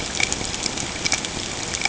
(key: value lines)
label: ambient
recorder: HydroMoth